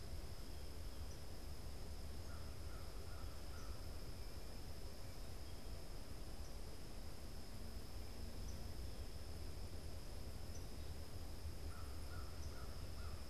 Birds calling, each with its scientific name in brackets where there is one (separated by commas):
unidentified bird, American Crow (Corvus brachyrhynchos)